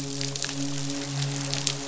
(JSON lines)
{"label": "biophony, midshipman", "recorder": "SoundTrap 500"}